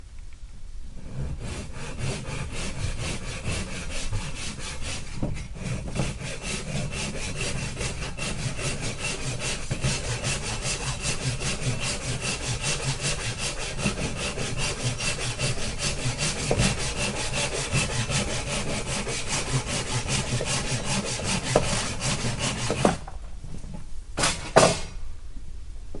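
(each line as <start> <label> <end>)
1.2 A saw is cutting wood steadily with some nearby pauses. 23.1
24.1 A saw is thrown away suddenly. 25.2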